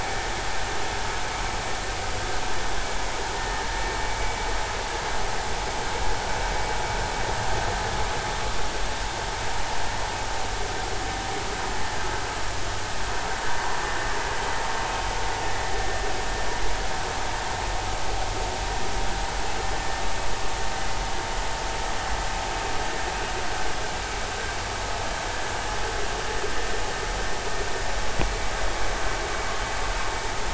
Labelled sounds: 3.3	3.6	vessel noise, 1.8 to 1.9 kHz

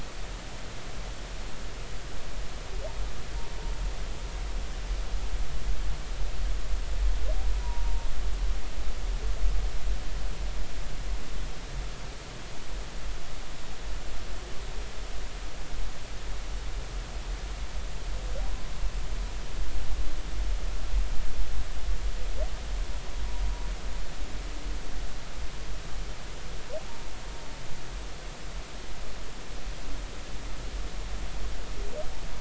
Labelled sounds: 7.6	8.1	humpback whale, 0.86 to 1.0 kHz
26.9	27.1	humpback whale, 0.86 to 1.1 kHz

